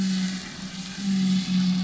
{"label": "anthrophony, boat engine", "recorder": "SoundTrap 500"}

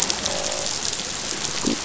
{"label": "biophony, croak", "recorder": "SoundTrap 500"}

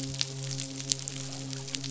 {"label": "biophony, midshipman", "recorder": "SoundTrap 500"}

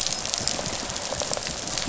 {"label": "biophony, rattle response", "recorder": "SoundTrap 500"}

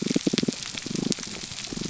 {"label": "biophony, damselfish", "recorder": "SoundTrap 300"}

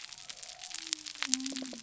{"label": "biophony", "recorder": "SoundTrap 300"}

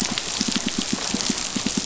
{"label": "biophony, pulse", "recorder": "SoundTrap 500"}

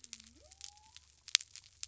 {"label": "biophony", "recorder": "SoundTrap 300"}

